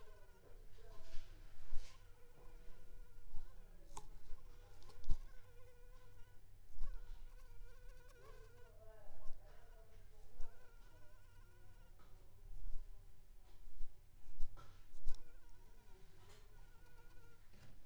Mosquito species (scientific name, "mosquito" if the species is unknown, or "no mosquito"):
Anopheles arabiensis